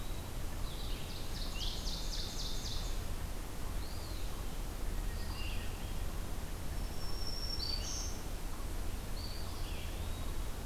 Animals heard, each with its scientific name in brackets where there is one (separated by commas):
Eastern Wood-Pewee (Contopus virens), Hermit Thrush (Catharus guttatus), Red-eyed Vireo (Vireo olivaceus), Black-throated Green Warbler (Setophaga virens), Ovenbird (Seiurus aurocapilla)